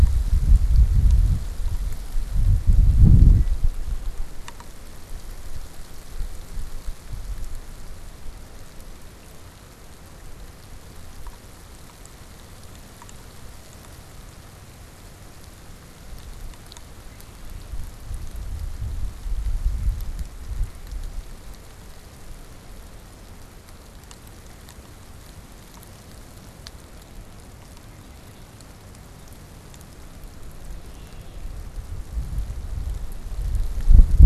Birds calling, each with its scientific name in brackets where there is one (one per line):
Red-winged Blackbird (Agelaius phoeniceus)